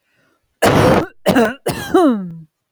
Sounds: Cough